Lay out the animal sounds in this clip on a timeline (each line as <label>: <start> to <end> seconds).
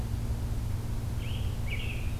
American Robin (Turdus migratorius): 1.1 to 2.2 seconds